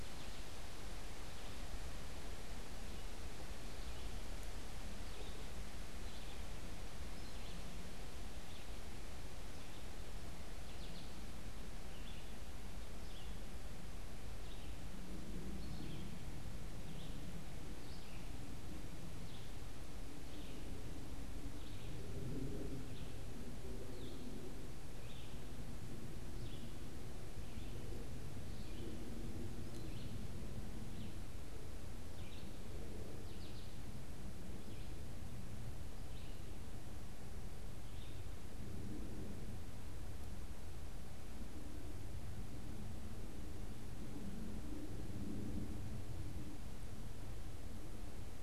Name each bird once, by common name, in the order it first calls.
American Goldfinch, Red-eyed Vireo